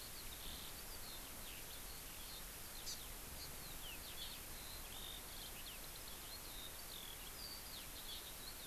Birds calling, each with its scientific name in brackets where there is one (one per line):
Hawaii Amakihi (Chlorodrepanis virens)
Eurasian Skylark (Alauda arvensis)